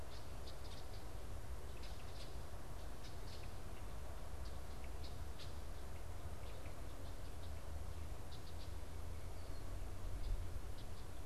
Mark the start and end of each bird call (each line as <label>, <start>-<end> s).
Red-winged Blackbird (Agelaius phoeniceus), 0.0-10.9 s